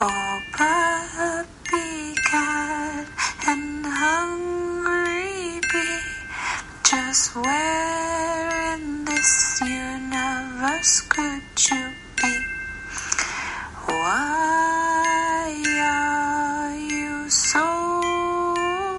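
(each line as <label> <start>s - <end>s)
A woman is singing. 0.0s - 19.0s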